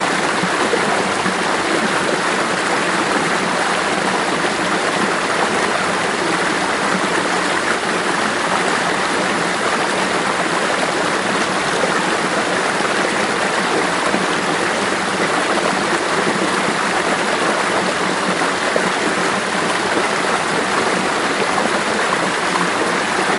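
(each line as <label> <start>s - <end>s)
A steady, continuous flow of water. 0.0s - 23.4s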